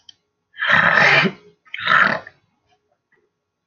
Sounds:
Throat clearing